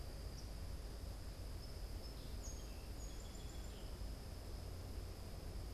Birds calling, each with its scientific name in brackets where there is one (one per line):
Song Sparrow (Melospiza melodia)